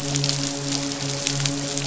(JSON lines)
{"label": "biophony, midshipman", "recorder": "SoundTrap 500"}